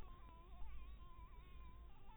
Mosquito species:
mosquito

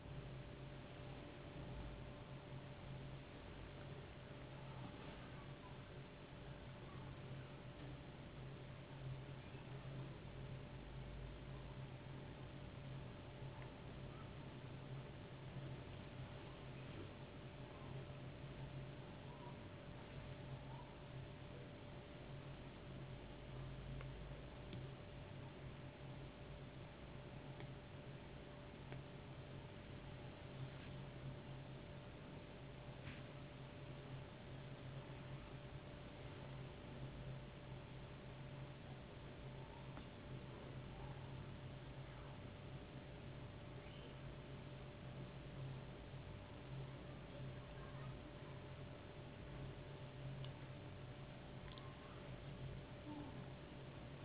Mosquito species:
no mosquito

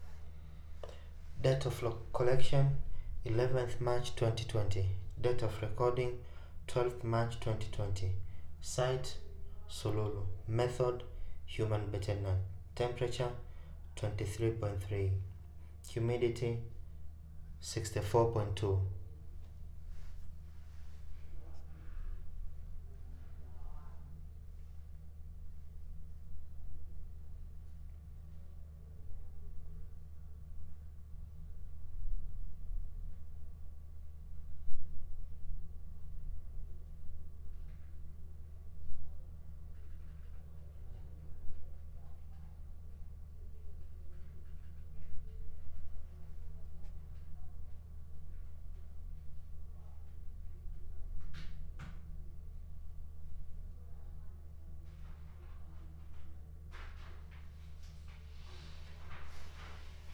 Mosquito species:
no mosquito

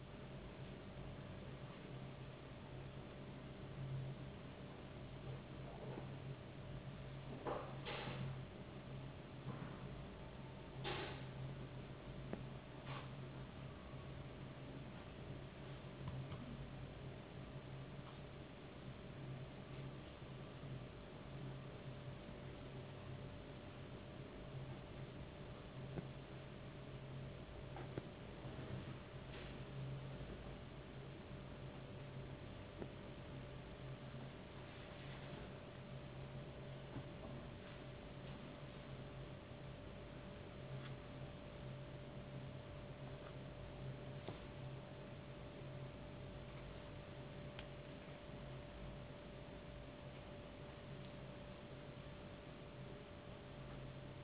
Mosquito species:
no mosquito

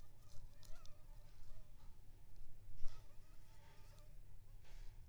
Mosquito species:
Anopheles funestus s.s.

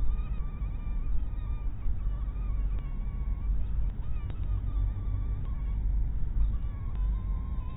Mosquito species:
mosquito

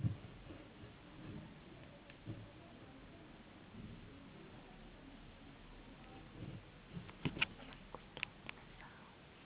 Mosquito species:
no mosquito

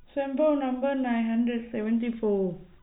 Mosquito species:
no mosquito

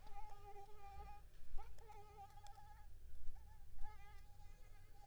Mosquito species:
Anopheles squamosus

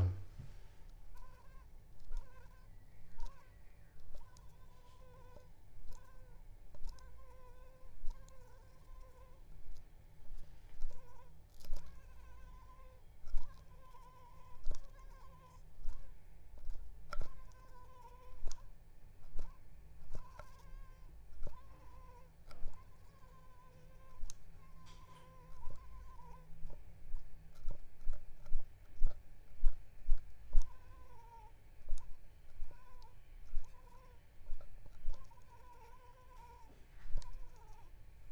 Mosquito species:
Anopheles arabiensis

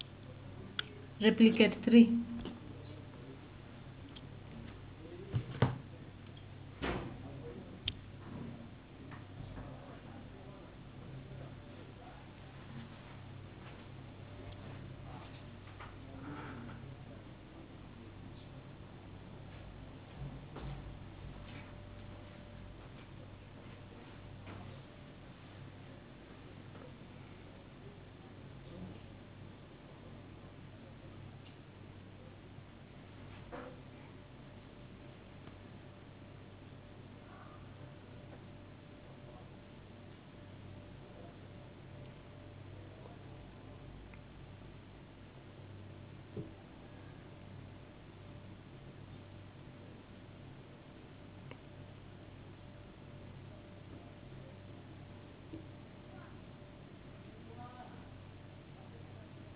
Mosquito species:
no mosquito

